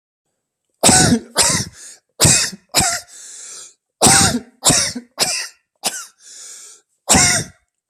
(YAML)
expert_labels:
- quality: good
  cough_type: dry
  dyspnea: false
  wheezing: true
  stridor: true
  choking: false
  congestion: false
  nothing: false
  diagnosis: obstructive lung disease
  severity: unknown
age: 35
gender: male
respiratory_condition: true
fever_muscle_pain: true
status: COVID-19